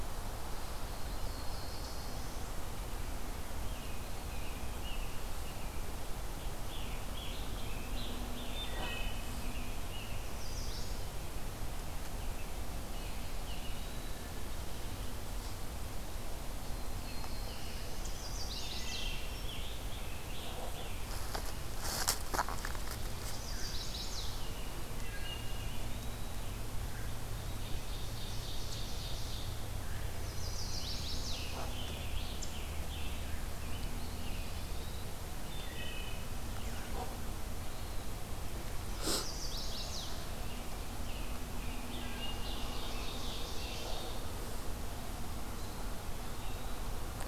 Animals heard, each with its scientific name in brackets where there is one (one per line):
Black-throated Blue Warbler (Setophaga caerulescens)
Scarlet Tanager (Piranga olivacea)
Ovenbird (Seiurus aurocapilla)
American Robin (Turdus migratorius)
Wood Thrush (Hylocichla mustelina)
Chestnut-sided Warbler (Setophaga pensylvanica)
Eastern Wood-Pewee (Contopus virens)